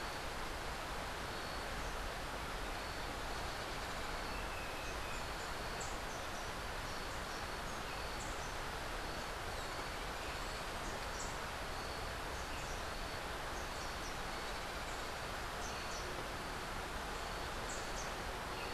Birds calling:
Rufous-tailed Hummingbird (Amazilia tzacatl)

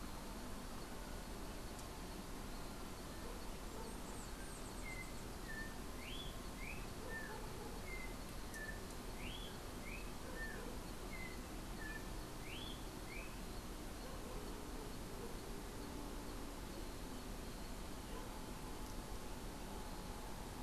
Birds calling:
Bananaquit (Coereba flaveola)
Yellow-backed Oriole (Icterus chrysater)

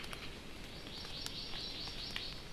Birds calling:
Hawaii Amakihi (Chlorodrepanis virens)

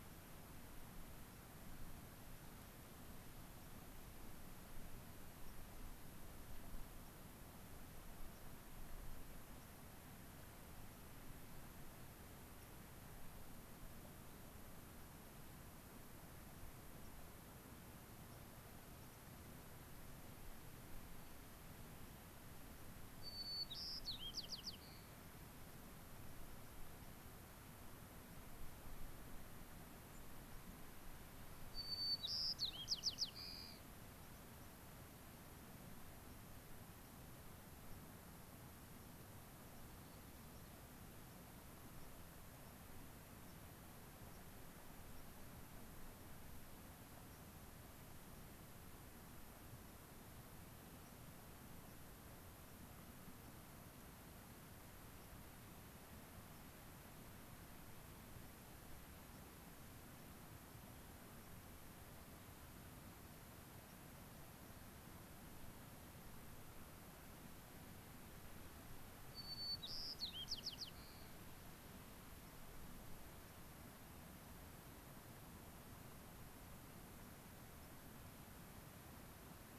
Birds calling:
White-crowned Sparrow (Zonotrichia leucophrys)

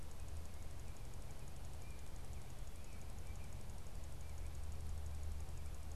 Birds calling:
American Robin (Turdus migratorius)

